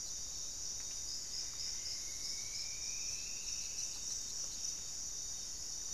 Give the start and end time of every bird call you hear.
0.0s-5.9s: Buff-breasted Wren (Cantorchilus leucotis)
0.0s-5.9s: unidentified bird
1.1s-4.1s: Striped Woodcreeper (Xiphorhynchus obsoletus)

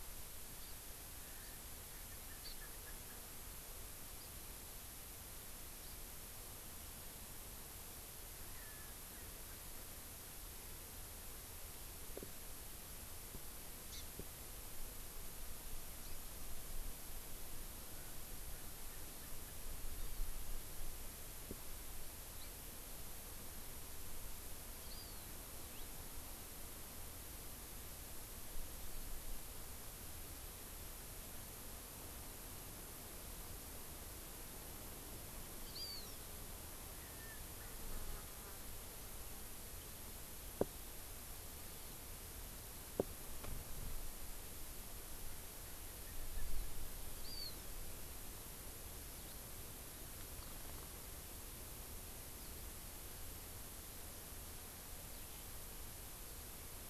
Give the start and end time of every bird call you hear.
0.6s-0.8s: Hawaii Amakihi (Chlorodrepanis virens)
2.0s-3.2s: Erckel's Francolin (Pternistis erckelii)
2.4s-2.6s: Hawaii Amakihi (Chlorodrepanis virens)
8.6s-10.5s: Erckel's Francolin (Pternistis erckelii)
13.9s-14.0s: Hawaii Amakihi (Chlorodrepanis virens)
22.4s-22.5s: Hawaii Amakihi (Chlorodrepanis virens)
24.8s-25.3s: Hawaii Amakihi (Chlorodrepanis virens)
35.7s-36.2s: Hawaii Amakihi (Chlorodrepanis virens)
36.9s-39.2s: Erckel's Francolin (Pternistis erckelii)
47.2s-47.6s: Hawaii Amakihi (Chlorodrepanis virens)

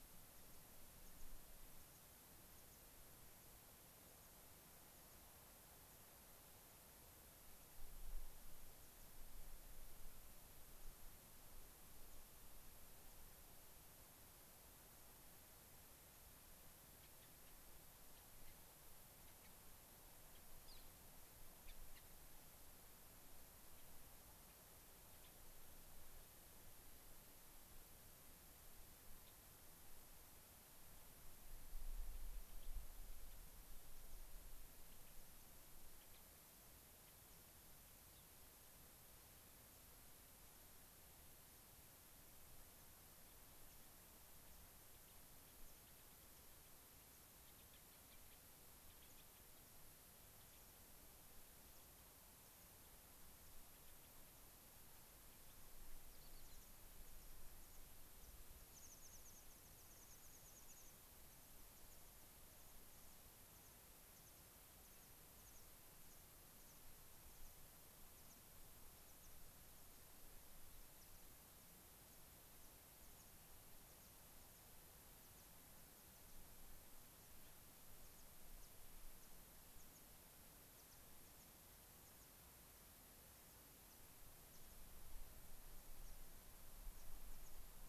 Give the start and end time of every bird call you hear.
0.0s-2.9s: American Pipit (Anthus rubescens)
16.9s-17.6s: Gray-crowned Rosy-Finch (Leucosticte tephrocotis)
18.1s-18.6s: Gray-crowned Rosy-Finch (Leucosticte tephrocotis)
19.2s-19.6s: Gray-crowned Rosy-Finch (Leucosticte tephrocotis)
20.2s-21.0s: Gray-crowned Rosy-Finch (Leucosticte tephrocotis)
21.6s-22.1s: Gray-crowned Rosy-Finch (Leucosticte tephrocotis)
25.0s-25.4s: Gray-crowned Rosy-Finch (Leucosticte tephrocotis)
29.2s-29.4s: Gray-crowned Rosy-Finch (Leucosticte tephrocotis)
32.4s-32.7s: Gray-crowned Rosy-Finch (Leucosticte tephrocotis)
33.9s-34.4s: American Pipit (Anthus rubescens)
34.8s-35.1s: Gray-crowned Rosy-Finch (Leucosticte tephrocotis)
36.0s-36.3s: Gray-crowned Rosy-Finch (Leucosticte tephrocotis)
38.0s-38.3s: Gray-crowned Rosy-Finch (Leucosticte tephrocotis)
43.6s-43.8s: American Pipit (Anthus rubescens)
44.4s-49.5s: Gray-crowned Rosy-Finch (Leucosticte tephrocotis)
47.0s-47.3s: American Pipit (Anthus rubescens)
49.0s-49.3s: American Pipit (Anthus rubescens)
50.3s-50.7s: Gray-crowned Rosy-Finch (Leucosticte tephrocotis)
50.3s-50.8s: American Pipit (Anthus rubescens)
51.6s-52.0s: American Pipit (Anthus rubescens)
52.4s-52.7s: American Pipit (Anthus rubescens)
53.6s-54.3s: Gray-crowned Rosy-Finch (Leucosticte tephrocotis)
56.0s-57.5s: American Pipit (Anthus rubescens)
58.1s-69.3s: American Pipit (Anthus rubescens)
60.6s-60.9s: Gray-crowned Rosy-Finch (Leucosticte tephrocotis)
72.9s-73.3s: American Pipit (Anthus rubescens)
73.7s-87.6s: American Pipit (Anthus rubescens)
77.4s-77.6s: Gray-crowned Rosy-Finch (Leucosticte tephrocotis)

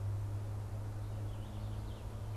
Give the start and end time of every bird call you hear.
1.3s-2.4s: Purple Finch (Haemorhous purpureus)

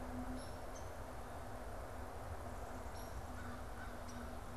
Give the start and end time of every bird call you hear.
0.1s-0.7s: Hairy Woodpecker (Dryobates villosus)
0.6s-1.0s: Downy Woodpecker (Dryobates pubescens)
2.8s-3.3s: Hairy Woodpecker (Dryobates villosus)
3.1s-4.5s: American Crow (Corvus brachyrhynchos)
3.9s-4.2s: Downy Woodpecker (Dryobates pubescens)

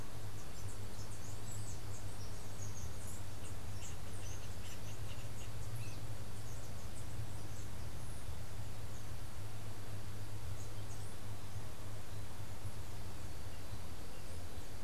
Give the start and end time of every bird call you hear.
0.0s-7.2s: Chestnut-capped Brushfinch (Arremon brunneinucha)
3.4s-6.2s: Yellow-headed Caracara (Milvago chimachima)

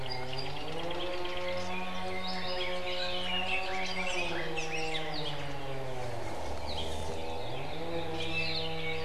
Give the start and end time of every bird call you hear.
0.0s-1.7s: Apapane (Himatione sanguinea)
1.4s-5.2s: Red-billed Leiothrix (Leiothrix lutea)
2.2s-2.7s: Apapane (Himatione sanguinea)
4.0s-4.8s: Apapane (Himatione sanguinea)
5.1s-5.4s: Apapane (Himatione sanguinea)
6.6s-6.9s: Apapane (Himatione sanguinea)
8.1s-8.7s: Hawaii Creeper (Loxops mana)

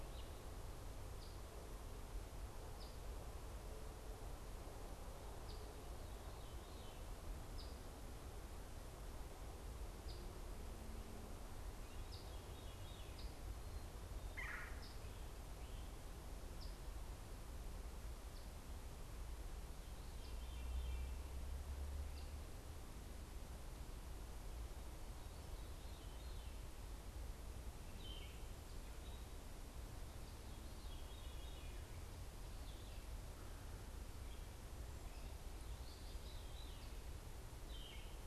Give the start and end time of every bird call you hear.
0.0s-13.3s: Veery (Catharus fuscescens)
0.0s-16.9s: Eastern Phoebe (Sayornis phoebe)
14.1s-14.9s: Red-bellied Woodpecker (Melanerpes carolinus)
18.2s-38.3s: Eastern Phoebe (Sayornis phoebe)
19.4s-38.3s: Veery (Catharus fuscescens)
27.8s-28.5s: Yellow-throated Vireo (Vireo flavifrons)
37.4s-38.3s: Yellow-throated Vireo (Vireo flavifrons)

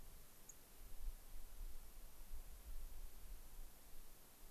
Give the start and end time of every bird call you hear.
0.4s-0.5s: Dark-eyed Junco (Junco hyemalis)

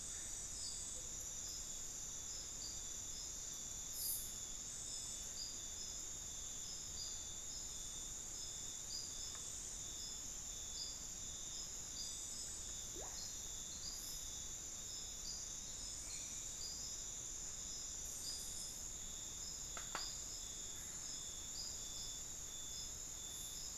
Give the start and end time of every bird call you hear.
0.9s-1.4s: Amazonian Motmot (Momotus momota)

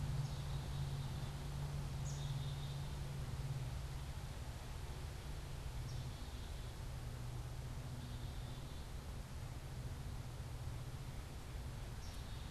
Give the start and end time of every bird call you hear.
0.0s-12.5s: Black-capped Chickadee (Poecile atricapillus)

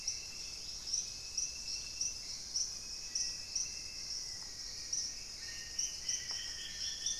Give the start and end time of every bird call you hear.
0.0s-7.2s: Dusky-throated Antshrike (Thamnomanes ardesiacus)
0.0s-7.2s: Hauxwell's Thrush (Turdus hauxwelli)
0.3s-1.4s: Dusky-capped Greenlet (Pachysylvia hypoxantha)
2.2s-4.5s: Wing-barred Piprites (Piprites chloris)
3.0s-7.2s: Black-faced Antthrush (Formicarius analis)

